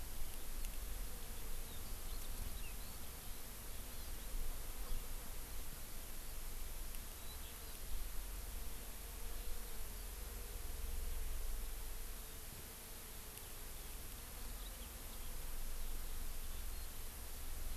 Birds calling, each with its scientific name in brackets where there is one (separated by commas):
Eurasian Skylark (Alauda arvensis), Hawaii Amakihi (Chlorodrepanis virens)